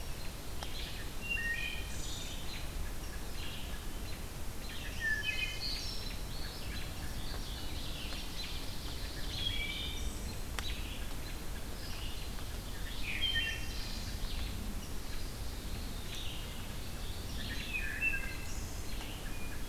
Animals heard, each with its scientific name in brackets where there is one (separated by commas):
Mourning Warbler (Geothlypis philadelphia), Red-eyed Vireo (Vireo olivaceus), Ovenbird (Seiurus aurocapilla), Chestnut-sided Warbler (Setophaga pensylvanica), Wood Thrush (Hylocichla mustelina)